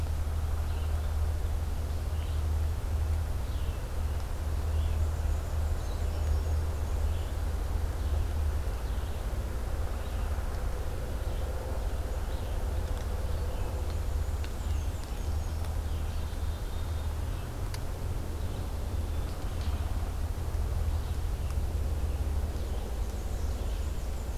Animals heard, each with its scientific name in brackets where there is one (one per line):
Red-eyed Vireo (Vireo olivaceus)
Downy Woodpecker (Dryobates pubescens)
Black-capped Chickadee (Poecile atricapillus)
Black-and-white Warbler (Mniotilta varia)